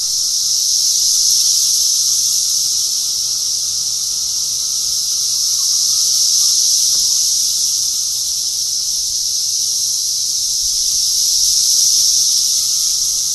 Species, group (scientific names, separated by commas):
Magicicada cassini, Cicadidae